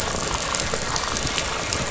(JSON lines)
{"label": "anthrophony, boat engine", "recorder": "SoundTrap 500"}